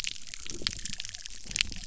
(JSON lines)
{"label": "biophony", "recorder": "SoundTrap 300"}